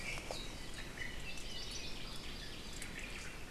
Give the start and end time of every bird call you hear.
[1.20, 1.90] Hawaii Creeper (Loxops mana)
[2.70, 3.50] Omao (Myadestes obscurus)

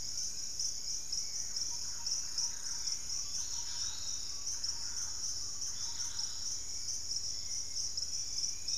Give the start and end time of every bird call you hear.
[0.00, 0.52] Fasciated Antshrike (Cymbilaimus lineatus)
[0.00, 3.52] Gray Antwren (Myrmotherula menetriesii)
[0.00, 8.77] Dusky-capped Greenlet (Pachysylvia hypoxantha)
[0.00, 8.77] Piratic Flycatcher (Legatus leucophaius)
[1.12, 6.52] Thrush-like Wren (Campylorhynchus turdinus)
[1.22, 8.77] Hauxwell's Thrush (Turdus hauxwelli)
[8.02, 8.77] Dusky-capped Flycatcher (Myiarchus tuberculifer)

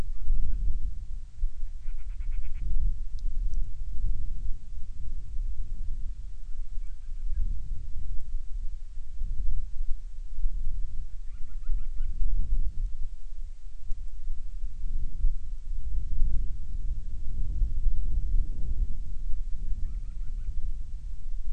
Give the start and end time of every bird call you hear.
[0.09, 0.79] Band-rumped Storm-Petrel (Hydrobates castro)
[1.79, 2.69] Band-rumped Storm-Petrel (Hydrobates castro)
[11.19, 12.19] Band-rumped Storm-Petrel (Hydrobates castro)
[19.79, 20.59] Band-rumped Storm-Petrel (Hydrobates castro)

